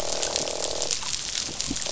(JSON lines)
{"label": "biophony, croak", "recorder": "SoundTrap 500"}